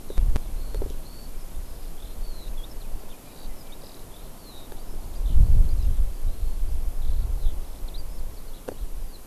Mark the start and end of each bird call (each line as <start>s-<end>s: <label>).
0.0s-9.3s: Eurasian Skylark (Alauda arvensis)